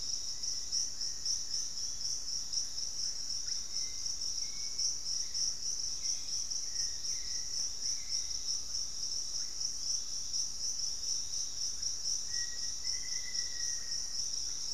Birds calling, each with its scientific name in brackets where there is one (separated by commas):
Hauxwell's Thrush (Turdus hauxwelli), Piratic Flycatcher (Legatus leucophaius), Black-faced Antthrush (Formicarius analis), unidentified bird